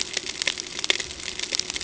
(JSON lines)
{"label": "ambient", "recorder": "HydroMoth"}